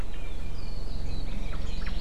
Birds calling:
Omao (Myadestes obscurus)

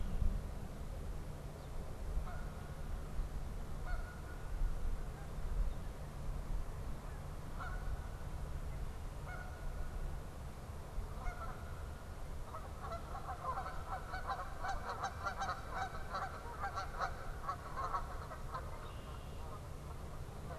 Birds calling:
Red-winged Blackbird (Agelaius phoeniceus), Canada Goose (Branta canadensis)

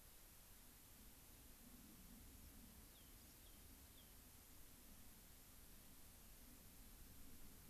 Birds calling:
Rock Wren (Salpinctes obsoletus)

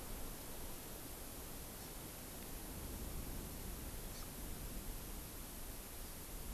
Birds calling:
Hawaii Amakihi (Chlorodrepanis virens)

